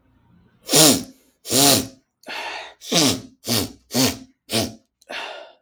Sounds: Sniff